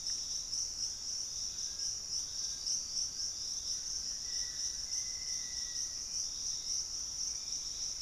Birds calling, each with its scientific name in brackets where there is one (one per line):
Hauxwell's Thrush (Turdus hauxwelli)
Fasciated Antshrike (Cymbilaimus lineatus)
Black-faced Antthrush (Formicarius analis)